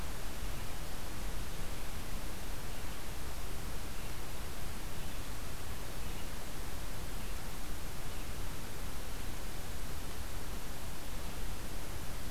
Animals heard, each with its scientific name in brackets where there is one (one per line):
Red-eyed Vireo (Vireo olivaceus)